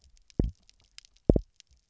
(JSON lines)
{"label": "biophony, double pulse", "recorder": "SoundTrap 300"}